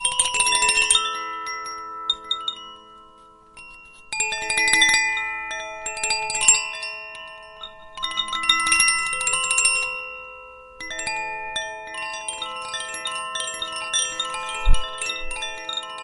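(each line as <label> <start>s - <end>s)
Bells chime melodically and rhythmically at a quiet volume. 0.0s - 2.9s
Bells chime melodically and rhythmically at a quiet volume. 3.5s - 16.0s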